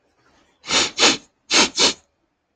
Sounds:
Sniff